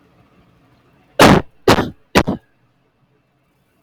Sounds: Cough